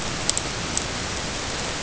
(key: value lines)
label: ambient
recorder: HydroMoth